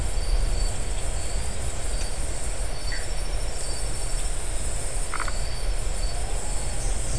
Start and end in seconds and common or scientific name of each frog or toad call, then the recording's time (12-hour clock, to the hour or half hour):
2.8	3.1	Dendropsophus elegans
5.0	5.4	Phyllomedusa distincta
1am